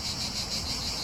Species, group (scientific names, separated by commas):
Cicada orni, Cicadidae